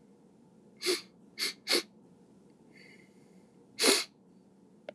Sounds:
Sniff